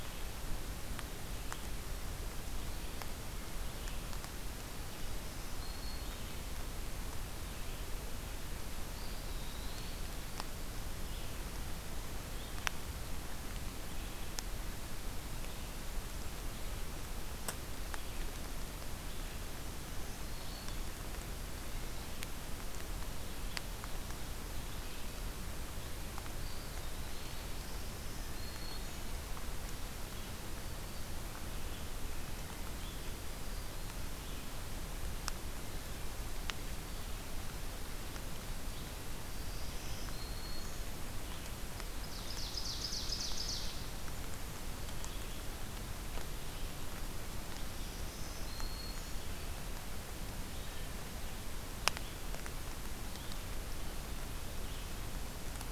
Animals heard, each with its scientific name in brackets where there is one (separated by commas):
Red-eyed Vireo (Vireo olivaceus), Ovenbird (Seiurus aurocapilla), Eastern Wood-Pewee (Contopus virens), Black-throated Green Warbler (Setophaga virens)